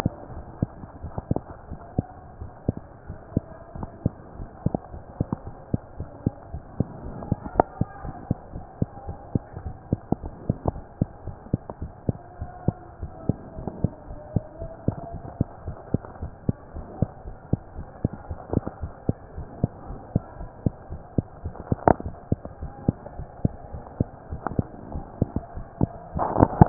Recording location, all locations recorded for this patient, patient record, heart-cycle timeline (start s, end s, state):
mitral valve (MV)
aortic valve (AV)+pulmonary valve (PV)+tricuspid valve (TV)+mitral valve (MV)
#Age: Child
#Sex: Female
#Height: 98.0 cm
#Weight: 15.9 kg
#Pregnancy status: False
#Murmur: Absent
#Murmur locations: nan
#Most audible location: nan
#Systolic murmur timing: nan
#Systolic murmur shape: nan
#Systolic murmur grading: nan
#Systolic murmur pitch: nan
#Systolic murmur quality: nan
#Diastolic murmur timing: nan
#Diastolic murmur shape: nan
#Diastolic murmur grading: nan
#Diastolic murmur pitch: nan
#Diastolic murmur quality: nan
#Outcome: Abnormal
#Campaign: 2015 screening campaign
0.00	1.00	unannotated
1.00	1.12	S1
1.12	1.30	systole
1.30	1.44	S2
1.44	1.68	diastole
1.68	1.78	S1
1.78	1.94	systole
1.94	2.06	S2
2.06	2.39	diastole
2.39	2.50	S2
2.50	2.66	diastole
2.66	2.76	S1
2.76	3.05	diastole
3.05	3.18	S1
3.18	3.34	systole
3.34	3.46	S2
3.46	3.74	diastole
3.74	3.90	S1
3.90	4.04	systole
4.04	4.18	S2
4.18	4.38	diastole
4.38	4.48	S1
4.48	4.62	systole
4.62	4.74	S2
4.74	4.92	diastole
4.92	5.02	S1
5.02	5.16	systole
5.16	5.28	S2
5.28	5.43	diastole
5.43	5.56	S1
5.56	5.72	systole
5.72	5.82	S2
5.82	5.98	diastole
5.98	6.08	S1
6.08	6.22	systole
6.22	6.36	S2
6.36	6.52	diastole
6.52	6.62	S1
6.62	6.76	systole
6.76	6.88	S2
6.88	7.04	diastole
7.04	7.16	S1
7.16	7.30	systole
7.30	7.40	S2
7.40	7.54	diastole
7.54	7.66	S1
7.66	7.80	systole
7.80	7.90	S2
7.90	8.04	diastole
8.04	8.14	S1
8.14	8.26	systole
8.26	8.40	S2
8.40	8.54	diastole
8.54	8.64	S1
8.64	8.78	systole
8.78	8.90	S2
8.90	9.08	diastole
9.08	9.18	S1
9.18	9.34	systole
9.34	9.44	S2
9.44	9.64	diastole
9.64	9.76	S1
9.76	9.88	systole
9.88	10.02	S2
10.02	10.22	diastole
10.22	10.34	S1
10.34	10.44	systole
10.44	10.58	S2
10.58	10.72	diastole
10.72	10.84	S1
10.84	11.00	systole
11.00	11.10	S2
11.10	11.26	diastole
11.26	11.36	S1
11.36	11.52	systole
11.52	11.62	S2
11.62	11.80	diastole
11.80	11.92	S1
11.92	12.04	systole
12.04	12.18	S2
12.18	12.40	diastole
12.40	12.50	S1
12.50	12.64	systole
12.64	12.78	S2
12.78	13.00	diastole
13.00	13.12	S1
13.12	13.26	systole
13.26	13.40	S2
13.40	13.55	diastole
13.55	13.69	S1
13.69	13.82	systole
13.82	13.92	S2
13.92	14.08	diastole
14.08	14.20	S1
14.20	14.32	systole
14.32	14.46	S2
14.46	14.60	diastole
14.60	14.72	S1
14.72	14.84	systole
14.84	14.98	S2
14.98	15.12	diastole
15.12	15.24	S1
15.24	15.36	systole
15.36	15.50	S2
15.50	15.66	diastole
15.66	15.76	S1
15.76	15.90	systole
15.90	16.04	S2
16.04	16.20	diastole
16.20	16.32	S1
16.32	16.44	systole
16.44	16.58	S2
16.58	16.73	diastole
16.73	16.86	S1
16.86	16.98	systole
16.98	17.12	S2
17.12	17.26	diastole
17.26	17.36	S1
17.36	17.48	systole
17.48	17.60	S2
17.60	17.76	diastole
17.76	17.88	S1
17.88	18.00	systole
18.00	18.14	S2
18.14	18.28	diastole
18.28	18.38	S1
18.38	18.52	systole
18.52	18.64	S2
18.64	18.82	diastole
18.82	18.92	S1
18.92	19.04	systole
19.04	19.16	S2
19.16	19.36	diastole
19.36	19.48	S1
19.48	19.62	systole
19.62	19.74	S2
19.74	19.88	diastole
19.88	20.00	S1
20.00	20.12	systole
20.12	20.26	S2
20.26	20.38	diastole
20.38	20.50	S1
20.50	20.62	systole
20.62	20.76	S2
20.76	20.90	diastole
20.90	21.02	S1
21.02	21.14	systole
21.14	21.28	S2
21.28	21.44	diastole
21.44	21.56	S1
21.56	21.68	systole
21.68	21.82	S2
21.82	22.04	diastole
22.04	22.16	S1
22.16	22.28	systole
22.28	22.42	S2
22.42	22.60	diastole
22.60	22.72	S1
22.72	22.86	systole
22.86	22.98	S2
22.98	23.16	diastole
23.16	23.28	S1
23.28	23.40	systole
23.40	23.52	S2
23.52	23.72	diastole
23.72	23.84	S1
23.84	23.96	systole
23.96	24.10	S2
24.10	24.30	diastole
24.30	24.42	S1
24.42	24.52	systole
24.52	24.66	S2
24.66	24.88	diastole
24.88	25.04	S1
25.04	26.69	unannotated